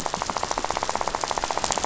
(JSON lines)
{"label": "biophony, rattle", "recorder": "SoundTrap 500"}